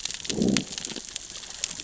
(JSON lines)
{"label": "biophony, growl", "recorder": "SoundTrap 600 or HydroMoth"}